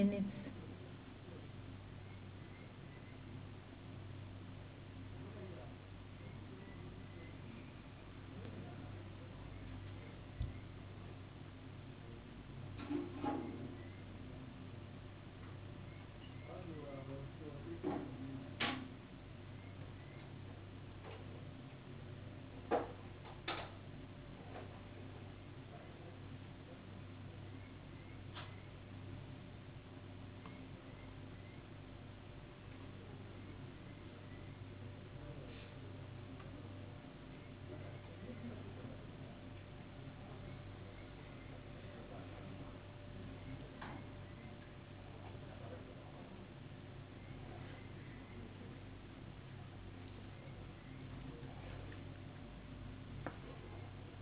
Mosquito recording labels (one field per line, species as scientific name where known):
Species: no mosquito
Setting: insect culture